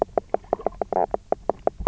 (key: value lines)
label: biophony, knock croak
recorder: SoundTrap 300